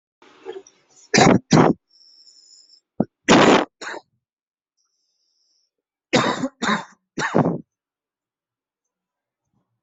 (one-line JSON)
{"expert_labels": [{"quality": "ok", "cough_type": "wet", "dyspnea": false, "wheezing": false, "stridor": false, "choking": false, "congestion": false, "nothing": true, "diagnosis": "lower respiratory tract infection", "severity": "mild"}], "age": 36, "gender": "male", "respiratory_condition": false, "fever_muscle_pain": false, "status": "symptomatic"}